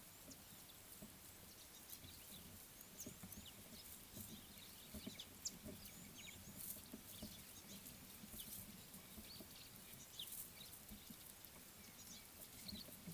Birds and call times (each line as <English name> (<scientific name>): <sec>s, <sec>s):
Scarlet-chested Sunbird (Chalcomitra senegalensis): 10.2s